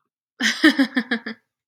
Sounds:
Laughter